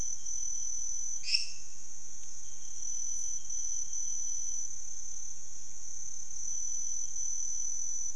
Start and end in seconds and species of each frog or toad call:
1.1	1.9	lesser tree frog
3:00am

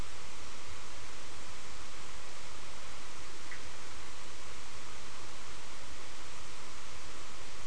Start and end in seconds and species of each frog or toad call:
3.4	3.7	Bischoff's tree frog
4:30am

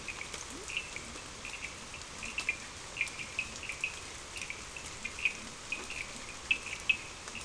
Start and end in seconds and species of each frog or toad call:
0.0	7.4	Cochran's lime tree frog
0.4	0.7	Leptodactylus latrans
4:30am

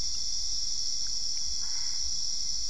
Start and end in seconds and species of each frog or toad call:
1.5	2.1	Boana albopunctata
11:30pm

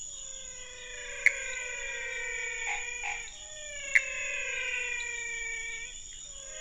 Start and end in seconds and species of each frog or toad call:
0.0	6.6	menwig frog
1.1	1.3	Pithecopus azureus
3.9	4.0	Pithecopus azureus
5.0	5.1	pepper frog
7:45pm

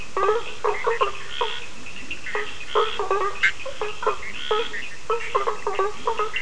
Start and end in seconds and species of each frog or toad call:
0.0	6.4	Bischoff's tree frog
0.0	6.4	Scinax perereca
0.2	6.4	blacksmith tree frog
0.2	6.4	Cochran's lime tree frog
1.7	2.3	Leptodactylus latrans
3:45am

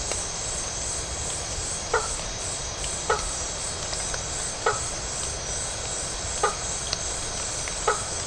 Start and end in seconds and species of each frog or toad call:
1.8	8.2	blacksmith tree frog
11:00pm

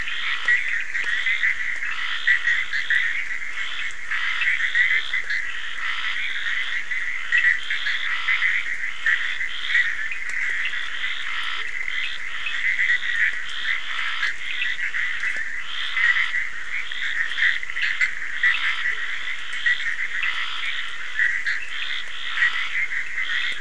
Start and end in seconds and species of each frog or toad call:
0.0	23.6	Bischoff's tree frog
0.0	23.6	Scinax perereca
4.9	5.3	Leptodactylus latrans
11.4	11.8	Leptodactylus latrans
18.8	19.1	Leptodactylus latrans
21.5	23.6	Cochran's lime tree frog
4:15am

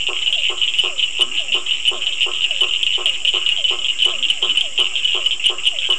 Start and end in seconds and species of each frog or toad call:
0.0	5.9	blacksmith tree frog
0.0	5.9	Physalaemus cuvieri
1.2	1.7	Leptodactylus latrans
4.1	4.8	Leptodactylus latrans
7:30pm

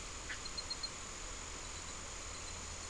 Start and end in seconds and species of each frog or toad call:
none
6:30pm

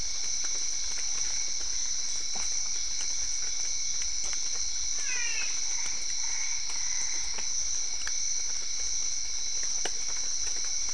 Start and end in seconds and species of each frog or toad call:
0.0	10.9	Physalaemus cuvieri
5.0	5.6	brown-spotted dwarf frog
5.6	7.5	Boana albopunctata
7:30pm

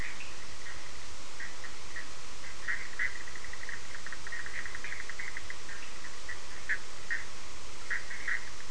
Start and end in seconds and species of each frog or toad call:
0.0	8.7	Bischoff's tree frog
0.2	0.3	Cochran's lime tree frog
9:00pm

